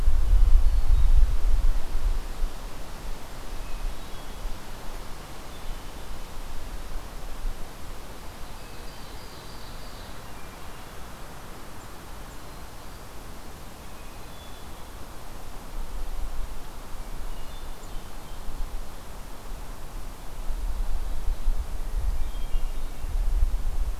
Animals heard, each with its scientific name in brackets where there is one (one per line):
Ovenbird (Seiurus aurocapilla)
Hermit Thrush (Catharus guttatus)